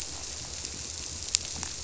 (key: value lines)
label: biophony
recorder: SoundTrap 300